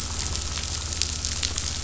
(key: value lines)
label: anthrophony, boat engine
recorder: SoundTrap 500